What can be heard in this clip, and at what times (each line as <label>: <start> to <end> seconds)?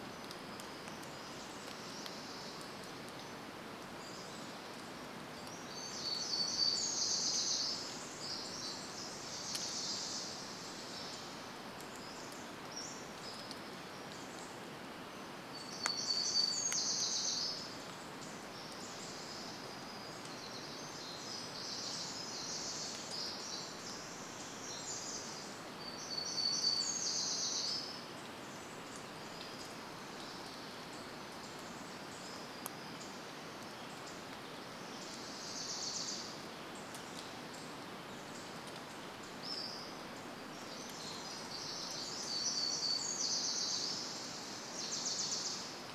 warbler song: 0 to 2 seconds
unidentified sound: 0 to 4 seconds
Pacific-slope Flycatcher song: 4 to 6 seconds
warbler song: 4 to 8 seconds
Pacific Wren song: 8 to 10 seconds
Wilson's Warbler song: 8 to 12 seconds
Pacific-slope Flycatcher song: 12 to 14 seconds
warbler song: 14 to 22 seconds
Pacific Wren song: 20 to 26 seconds
warbler song: 26 to 28 seconds
unidentified bird chip note: 28 to 34 seconds
Wilson's Warbler song: 34 to 38 seconds
Pacific-slope Flycatcher song: 38 to 40 seconds
Pacific Wren song: 40 to 46 seconds
warbler song: 42 to 44 seconds
Wilson's Warbler song: 44 to 46 seconds